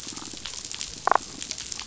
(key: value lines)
label: biophony, damselfish
recorder: SoundTrap 500